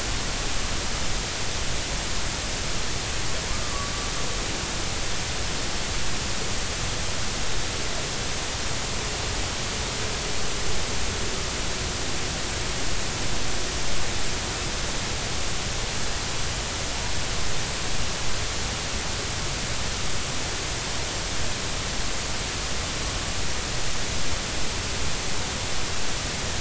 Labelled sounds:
3.5	3.9	humpback whale, 1.1 to 1.3 kHz

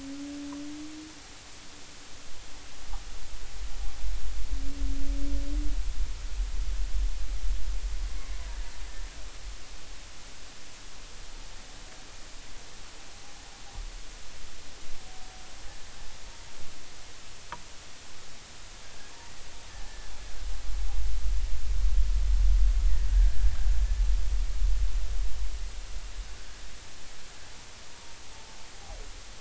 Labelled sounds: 19.9	20.1	humpback whale, 1.6 to 1.8 kHz
23.1	23.5	humpback whale, 1.5 to 1.8 kHz

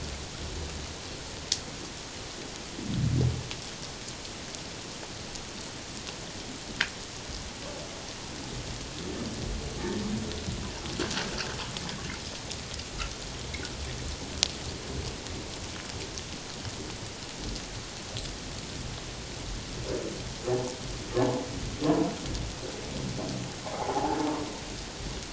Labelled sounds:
21.8	22.1	humpback whale, 0.94 to 1.1 kHz
23.7	24.2	humpback whale, 0.78 to 0.94 kHz

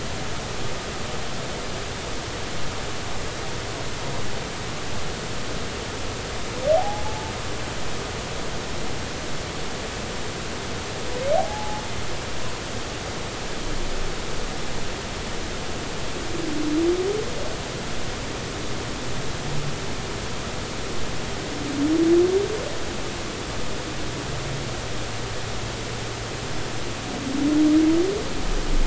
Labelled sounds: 6.7	7.0	humpback whale, 0.80 to 0.90 kHz
11.4	11.8	humpback whale, 0.80 to 0.90 kHz

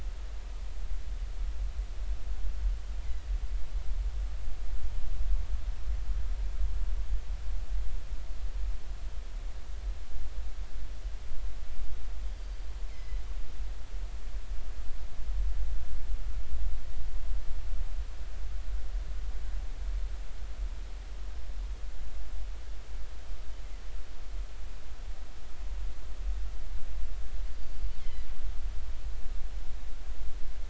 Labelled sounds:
12.9	13.2	killer whale, northern resident, G clan, GG subclan, call N23ii, 2.0 to 2.3 kHz
27.5	28.3	killer whale, northern resident, G clan, GG subclan, call N23ii, 1.9 to 4.7 kHz

